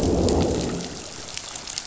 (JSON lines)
{"label": "biophony, growl", "recorder": "SoundTrap 500"}